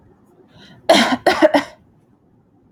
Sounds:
Cough